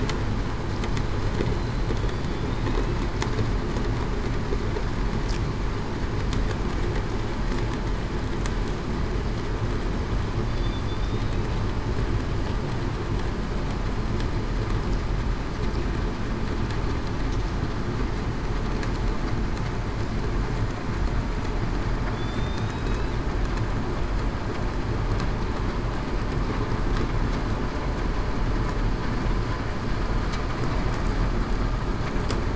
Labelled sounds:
11.0	11.4	killer whale, southern resident, 3.5 to 3.8 kHz
22.1	23.1	killer whale, southern resident, 3.3 to 4.0 kHz

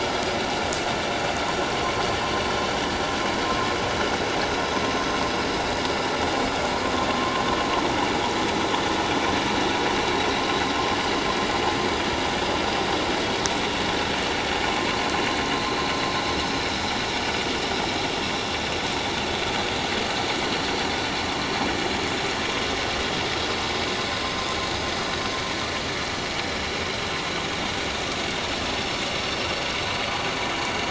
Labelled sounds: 7.2	7.4	vessel noise, 0.97 to 1.2 kHz
28.7	29.0	vessel noise, 5.2 to 5.5 kHz

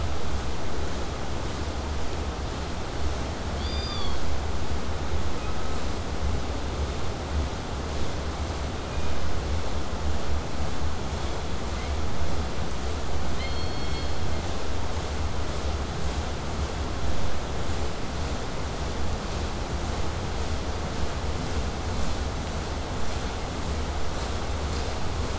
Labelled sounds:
3.6	4.2	killer whale, southern resident, K pod, call S16, 1.0 to 8.0 kHz
5.3	6.0	killer whale, southern resident, K pod, call S16, 0.95 to 2.9 kHz
8.8	9.3	killer whale, southern resident, K pod, call S16, 2.2 to 4.1 kHz
18.9	23.9	vessel noise, 0 to 8.0 kHz

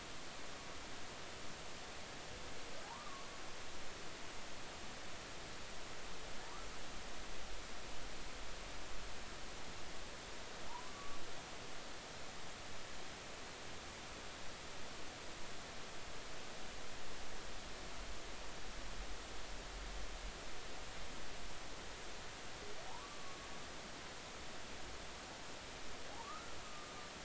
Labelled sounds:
2.8	3.3	humpback whale, 0.80 to 1.3 kHz
10.7	11.2	humpback whale, 0.83 to 1.2 kHz
22.9	23.4	humpback whale, 0.80 to 1.2 kHz
26.1	26.6	humpback whale, 0.80 to 1.4 kHz

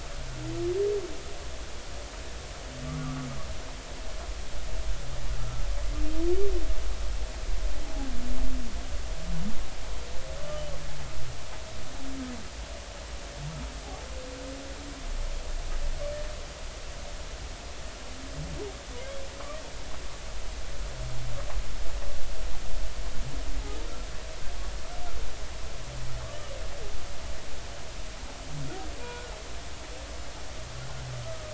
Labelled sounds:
5.4	5.6	humpback whale, 1.2 to 1.4 kHz
10.4	10.6	humpback whale, 1.1 to 1.2 kHz
29.0	29.3	humpback whale, 0.93 to 2.5 kHz
31.2	31.5	humpback whale, 1.2 to 1.3 kHz

